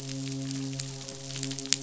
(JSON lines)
{"label": "biophony, midshipman", "recorder": "SoundTrap 500"}